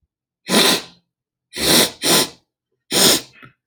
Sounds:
Sniff